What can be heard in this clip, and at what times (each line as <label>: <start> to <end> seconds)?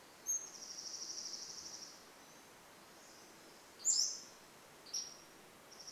Dark-eyed Junco song: 0 to 2 seconds
Pacific Wren song: 0 to 4 seconds
Pacific-slope Flycatcher song: 0 to 6 seconds